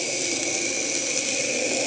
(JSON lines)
{"label": "anthrophony, boat engine", "recorder": "HydroMoth"}